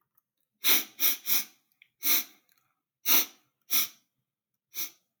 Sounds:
Sniff